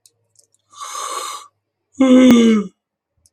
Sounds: Sneeze